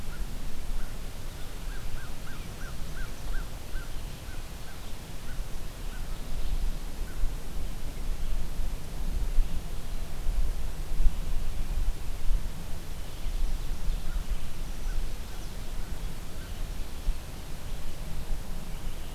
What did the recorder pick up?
American Crow, Chestnut-sided Warbler